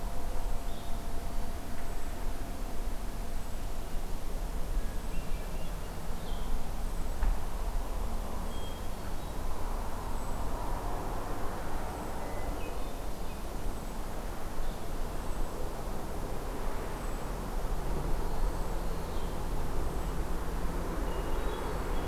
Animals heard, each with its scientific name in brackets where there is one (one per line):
Hermit Thrush (Catharus guttatus)
Blue-headed Vireo (Vireo solitarius)